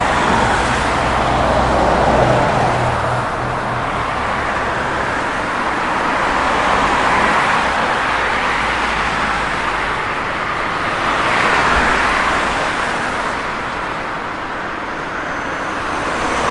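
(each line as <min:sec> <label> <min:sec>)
0:00.0 Loud whooshing and tire noise from fast-moving traffic on a wet road, with cars continuously passing by. 0:16.5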